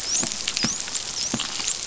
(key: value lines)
label: biophony, dolphin
recorder: SoundTrap 500